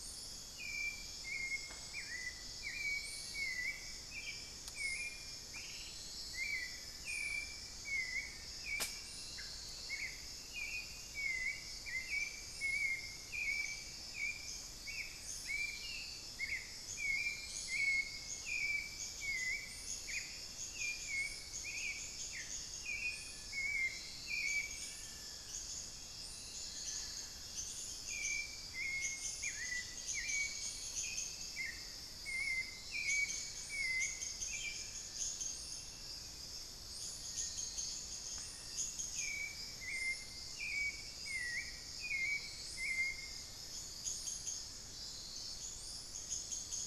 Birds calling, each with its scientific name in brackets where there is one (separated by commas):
unidentified bird, Hauxwell's Thrush (Turdus hauxwelli), Little Tinamou (Crypturellus soui), Long-billed Woodcreeper (Nasica longirostris)